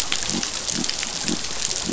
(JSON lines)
{"label": "biophony", "recorder": "SoundTrap 500"}